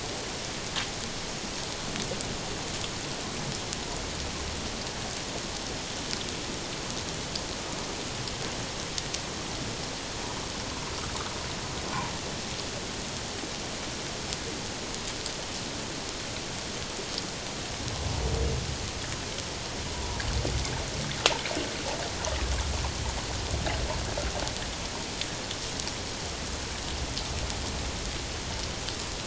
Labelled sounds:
19.9	20.2	humpback whale, 0.91 to 1.0 kHz

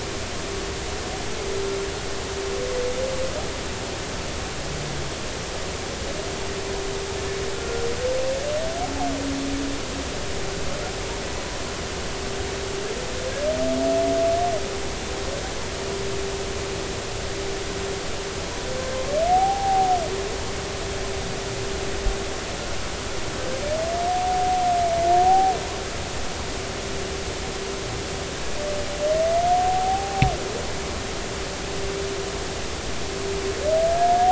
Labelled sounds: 7.5	7.8	humpback whale, 1.3 to 1.4 kHz
19.3	19.9	humpback whale, 0.80 to 0.86 kHz
24.1	24.6	humpback whale
25.2	25.5	humpback whale, 0.80 to 0.83 kHz
29.5	30.3	humpback whale, 0.80 to 0.86 kHz

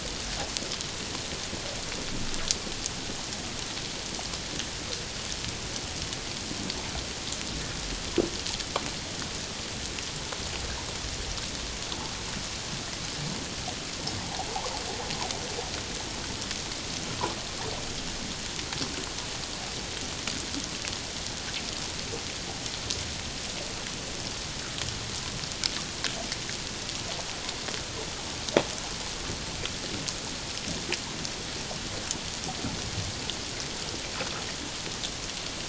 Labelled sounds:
14.2	14.5	water noise, 0.78 to 1.0 kHz

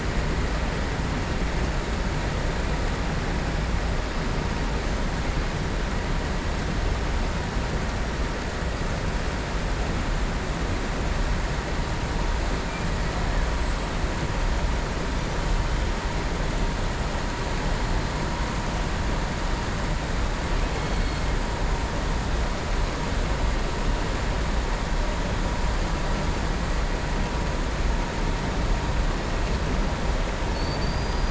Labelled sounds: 30.4	31.3	killer whale, southern resident, 4.4 to 5.0 kHz

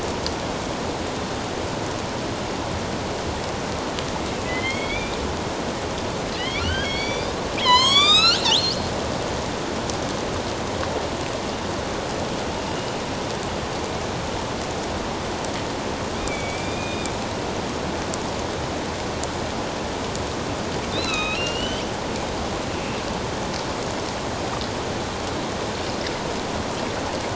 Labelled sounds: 4.4	5.2	killer whale, northern resident, A clan, AB subclan, 1.9 to 4.5 kHz
6.4	8.9	killer whale, northern resident, A clan, AB subclan, 0.91 to 8.0 kHz
16.2	17.1	killer whale, northern resident, A clan, AB subclan, 2.2 to 6.2 kHz
20.9	21.8	killer whale, northern resident, A clan, AB subclan, 1.2 to 5.8 kHz

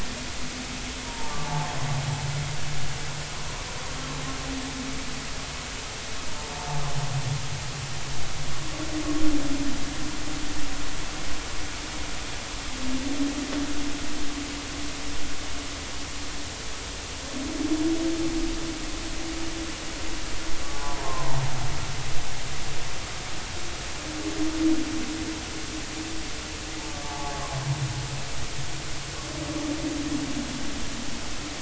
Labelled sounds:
1.0	1.4	humpback whale, 0.83 to 1.1 kHz
6.4	6.7	humpback whale, 0.86 to 0.93 kHz
20.7	21.2	humpback whale, 0.80 to 1.1 kHz
27.0	27.3	humpback whale, 0.80 to 1.2 kHz

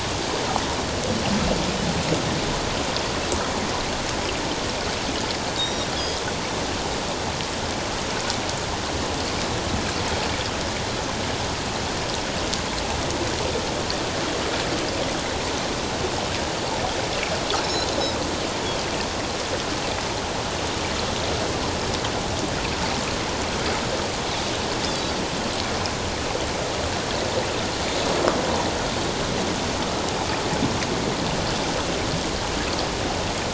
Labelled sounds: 5.6	6.2	Pacific white-sided dolphin, 3.2 to 3.9 kHz
17.6	17.9	Pacific white-sided dolphin, 3.8 to 5.5 kHz

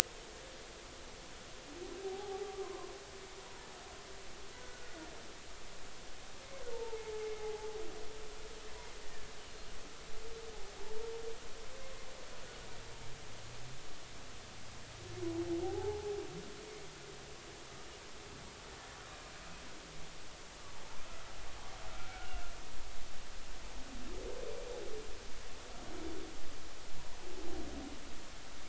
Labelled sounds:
2.0	2.9	humpback whale, 0.80 to 1.2 kHz
4.6	5.1	humpback whale, 1.4 to 1.5 kHz
6.7	7.7	humpback whale, 0.80 to 0.96 kHz
15.6	16.2	humpback whale, 0.80 to 0.93 kHz
21.9	22.4	humpback whale, 1.3 to 1.6 kHz

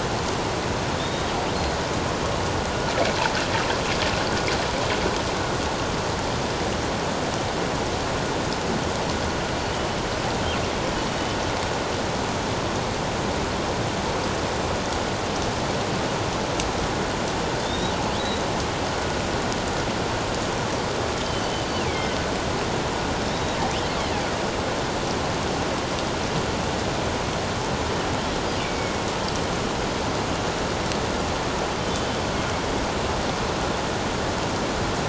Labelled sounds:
1.0	1.3	killer whale, northern resident, G clan, call N28, 3.5 to 3.8 kHz
17.6	18.5	killer whale, northern resident, G clan, 3.5 to 4.0 kHz
21.9	22.2	killer whale, northern resident, G clan, 2.0 to 2.4 kHz
28.6	29.0	killer whale, northern resident, G clan, 2.2 to 2.5 kHz

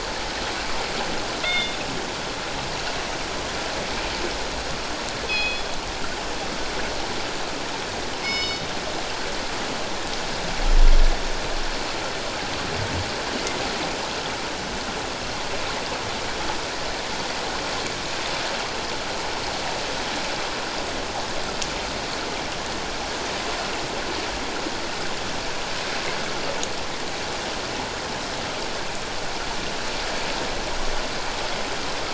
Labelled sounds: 1.4	1.8	killer whale, northern resident, G clan, call N24ii, 2.0 to 3.7 kHz
5.3	5.7	killer whale, northern resident, G clan, call N24ii, 2.4 to 4.3 kHz
8.2	8.7	killer whale, northern resident, G clan, call N24ii, 2.1 to 7.4 kHz

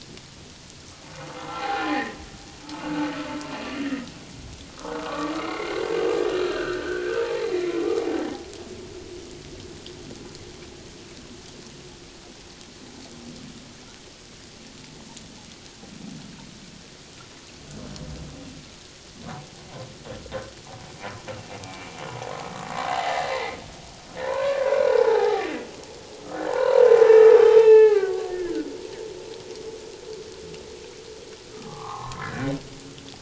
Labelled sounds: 1.4	2.2	humpback whale, 0.78 to 4.2 kHz
2.6	3.1	humpback whale, 0.84 to 1.6 kHz
3.8	5.8	humpback whale, 1.1 to 2.3 kHz
6.4	8.3	humpback whale, 0.78 to 2.2 kHz
21.6	21.9	humpback whale, 2.2 to 2.4 kHz
22.8	23.6	humpback whale, 0.78 to 2.2 kHz
24.2	25.5	humpback whale, 0.78 to 1.8 kHz
26.5	27.3	humpback whale, 0.81 to 1.9 kHz
27.6	28.7	humpback whale, 0.78 to 3.1 kHz
31.5	32.5	humpback whale, 0.78 to 1.8 kHz

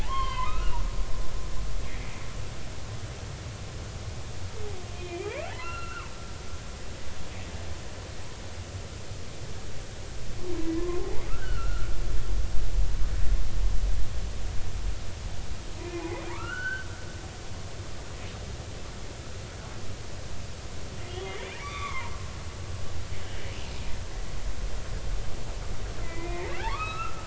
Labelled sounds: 0.0	0.8	humpback whale, 0.80 to 3.3 kHz
5.0	6.1	humpback whale, 0.80 to 4.2 kHz
10.7	11.9	humpback whale, 0.96 to 3.0 kHz
15.8	16.9	humpback whale, 0.83 to 4.6 kHz
21.1	22.2	humpback whale, 0.90 to 3.7 kHz
26.0	27.2	humpback whale, 0.80 to 5.3 kHz

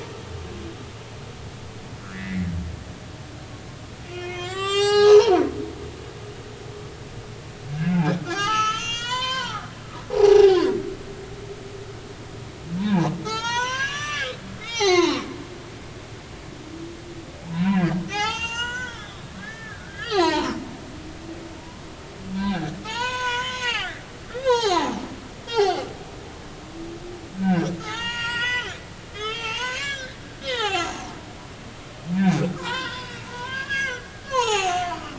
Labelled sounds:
2.0	2.5	humpback whale, 1.2 to 2.2 kHz
4.1	5.5	humpback whale, 0.80 to 8.0 kHz
8.2	9.7	humpback whale, 0.80 to 7.8 kHz
10.1	10.6	humpback whale, 0.80 to 0.99 kHz
12.8	15.2	humpback whale, 0.80 to 7.1 kHz
17.6	20.6	humpback whale, 0.80 to 7.6 kHz
21.6	21.8	humpback whale, 0.86 to 1.1 kHz
22.3	24.0	humpback whale, 0.80 to 7.1 kHz
24.3	25.0	humpback whale, 0.80 to 6.9 kHz
25.4	25.9	humpback whale, 0.80 to 4.8 kHz
27.4	30.9	humpback whale, 0.80 to 7.5 kHz
32.1	35.1	humpback whale, 0.80 to 7.0 kHz

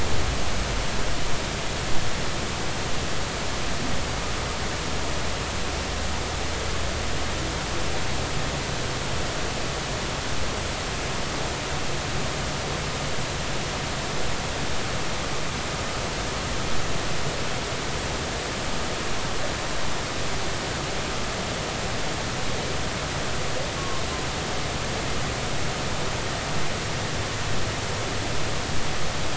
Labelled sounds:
23.8	24.0	humpback whale, 1.0 to 1.2 kHz

